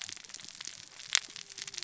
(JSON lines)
{"label": "biophony, cascading saw", "recorder": "SoundTrap 600 or HydroMoth"}